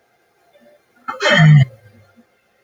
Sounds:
Sigh